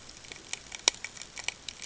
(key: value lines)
label: ambient
recorder: HydroMoth